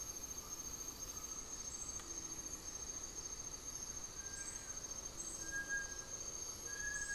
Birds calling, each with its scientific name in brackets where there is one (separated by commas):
Buff-throated Woodcreeper (Xiphorhynchus guttatus), Undulated Tinamou (Crypturellus undulatus), Blue-gray Saltator (Saltator coerulescens)